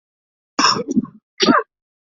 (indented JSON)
{
  "expert_labels": [
    {
      "quality": "poor",
      "cough_type": "dry",
      "dyspnea": false,
      "wheezing": false,
      "stridor": false,
      "choking": false,
      "congestion": false,
      "nothing": true,
      "diagnosis": "upper respiratory tract infection",
      "severity": "unknown"
    }
  ],
  "age": 29,
  "gender": "male",
  "respiratory_condition": false,
  "fever_muscle_pain": false,
  "status": "healthy"
}